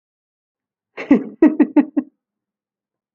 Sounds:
Laughter